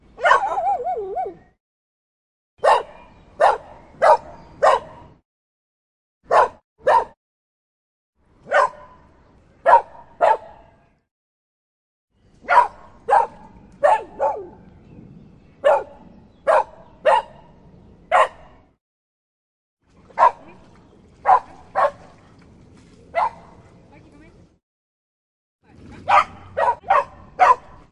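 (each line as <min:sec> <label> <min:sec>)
0:00.0 A dog barks loudly and then gradually decreases barking. 0:01.4
0:02.6 A dog barks loudly with small pauses between barks. 0:05.2
0:06.2 A dog barks loudly with small pauses in between. 0:07.2
0:08.5 A dog barks loudly repeatedly with varying pauses. 0:10.7
0:12.4 A dog barks loudly repeatedly with varying pauses. 0:14.6
0:15.6 A dog barks loudly repeatedly with varying pauses. 0:18.7
0:20.1 A dog barks loudly repeatedly with varying pauses. 0:23.5
0:23.9 A woman is talking nearby inaudibly. 0:24.6
0:25.7 A dog growls once and then barks loudly several times with varying pauses. 0:27.9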